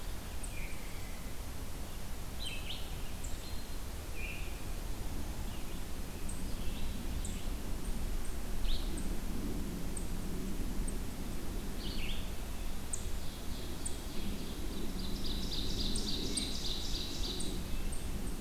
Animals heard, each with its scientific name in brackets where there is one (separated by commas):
Red-eyed Vireo (Vireo olivaceus), Red-breasted Nuthatch (Sitta canadensis), Ovenbird (Seiurus aurocapilla), Veery (Catharus fuscescens)